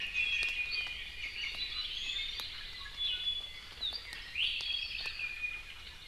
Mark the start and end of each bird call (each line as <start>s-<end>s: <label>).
0.0s-1.5s: Iiwi (Drepanis coccinea)
1.9s-2.4s: Iiwi (Drepanis coccinea)
2.8s-3.6s: Iiwi (Drepanis coccinea)
4.3s-4.5s: Iiwi (Drepanis coccinea)
4.5s-5.2s: Apapane (Himatione sanguinea)
5.2s-5.6s: Iiwi (Drepanis coccinea)